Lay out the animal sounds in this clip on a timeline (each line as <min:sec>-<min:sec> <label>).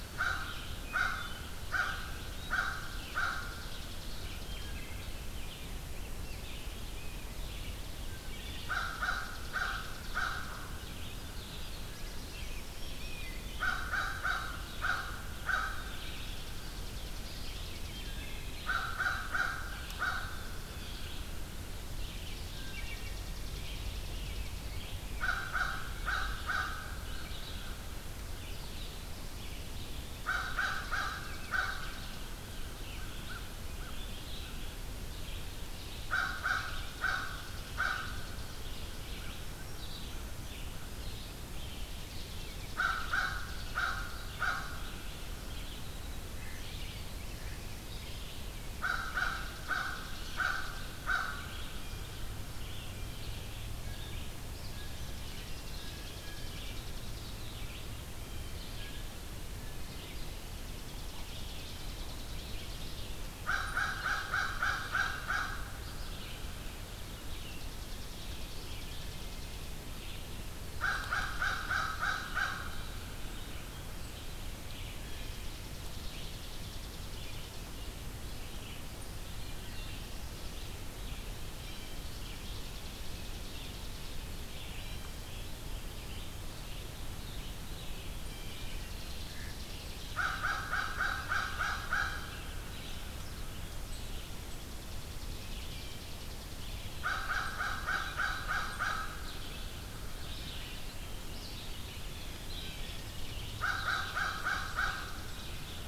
0:00.0-0:03.7 American Crow (Corvus brachyrhynchos)
0:00.0-0:33.5 Red-eyed Vireo (Vireo olivaceus)
0:00.7-0:01.5 Wood Thrush (Hylocichla mustelina)
0:03.0-0:04.6 Chipping Sparrow (Spizella passerina)
0:04.4-0:05.1 Wood Thrush (Hylocichla mustelina)
0:05.0-0:07.4 Rose-breasted Grosbeak (Pheucticus ludovicianus)
0:08.0-0:08.7 Wood Thrush (Hylocichla mustelina)
0:08.4-0:10.6 American Crow (Corvus brachyrhynchos)
0:08.7-0:10.7 Chipping Sparrow (Spizella passerina)
0:11.4-0:12.7 Black-throated Blue Warbler (Setophaga caerulescens)
0:11.9-0:13.8 Rose-breasted Grosbeak (Pheucticus ludovicianus)
0:13.5-0:15.9 American Crow (Corvus brachyrhynchos)
0:16.0-0:18.3 Chipping Sparrow (Spizella passerina)
0:17.7-0:18.6 Wood Thrush (Hylocichla mustelina)
0:18.5-0:20.6 American Crow (Corvus brachyrhynchos)
0:19.9-0:21.2 Blue Jay (Cyanocitta cristata)
0:22.5-0:23.3 Wood Thrush (Hylocichla mustelina)
0:22.8-0:24.7 Chipping Sparrow (Spizella passerina)
0:25.1-0:26.9 American Crow (Corvus brachyrhynchos)
0:30.1-0:31.9 American Crow (Corvus brachyrhynchos)
0:30.1-0:32.4 Chipping Sparrow (Spizella passerina)
0:32.4-0:34.6 American Crow (Corvus brachyrhynchos)
0:33.9-1:29.4 Red-eyed Vireo (Vireo olivaceus)
0:35.9-0:38.4 American Crow (Corvus brachyrhynchos)
0:36.0-0:38.8 Chipping Sparrow (Spizella passerina)
0:38.6-0:40.2 American Crow (Corvus brachyrhynchos)
0:41.7-0:44.4 Chipping Sparrow (Spizella passerina)
0:42.6-0:44.8 American Crow (Corvus brachyrhynchos)
0:48.7-0:51.5 American Crow (Corvus brachyrhynchos)
0:48.7-0:51.0 Chipping Sparrow (Spizella passerina)
0:53.8-0:56.7 Blue Jay (Cyanocitta cristata)
0:54.9-0:57.3 Chipping Sparrow (Spizella passerina)
0:58.0-0:58.8 Blue Jay (Cyanocitta cristata)
0:58.7-0:59.2 Wood Thrush (Hylocichla mustelina)
1:00.1-1:02.9 Chipping Sparrow (Spizella passerina)
1:03.3-1:05.6 American Crow (Corvus brachyrhynchos)
1:07.3-1:09.7 Chipping Sparrow (Spizella passerina)
1:10.7-1:12.8 American Crow (Corvus brachyrhynchos)
1:15.0-1:17.4 Chipping Sparrow (Spizella passerina)
1:21.4-1:22.1 Blue Jay (Cyanocitta cristata)
1:22.0-1:24.3 Chipping Sparrow (Spizella passerina)
1:24.7-1:25.3 Blue Jay (Cyanocitta cristata)
1:28.3-1:30.3 Chipping Sparrow (Spizella passerina)
1:29.2-1:29.7 Mallard (Anas platyrhynchos)
1:30.0-1:32.2 American Crow (Corvus brachyrhynchos)
1:32.1-1:45.9 Red-eyed Vireo (Vireo olivaceus)
1:34.3-1:36.8 Chipping Sparrow (Spizella passerina)
1:36.9-1:39.3 American Crow (Corvus brachyrhynchos)
1:42.3-1:42.9 Blue Jay (Cyanocitta cristata)
1:43.5-1:45.8 Chipping Sparrow (Spizella passerina)
1:43.5-1:45.1 American Crow (Corvus brachyrhynchos)